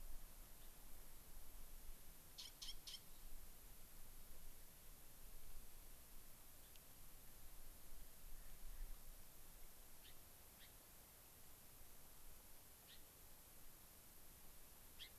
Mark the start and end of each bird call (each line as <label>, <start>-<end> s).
Gray-crowned Rosy-Finch (Leucosticte tephrocotis), 0.6-0.7 s
Gray-crowned Rosy-Finch (Leucosticte tephrocotis), 6.6-6.8 s
Gray-crowned Rosy-Finch (Leucosticte tephrocotis), 10.0-10.2 s
Gray-crowned Rosy-Finch (Leucosticte tephrocotis), 10.6-10.8 s
Gray-crowned Rosy-Finch (Leucosticte tephrocotis), 12.8-13.0 s
Gray-crowned Rosy-Finch (Leucosticte tephrocotis), 15.0-15.2 s